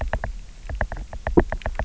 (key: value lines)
label: biophony, knock
recorder: SoundTrap 300